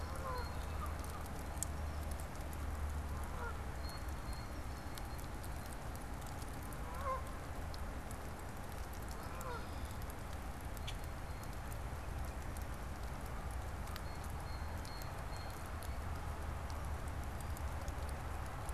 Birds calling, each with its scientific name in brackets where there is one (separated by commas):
Common Grackle (Quiscalus quiscula), Canada Goose (Branta canadensis), Blue Jay (Cyanocitta cristata)